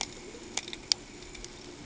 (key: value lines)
label: ambient
recorder: HydroMoth